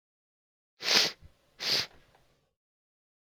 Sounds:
Sniff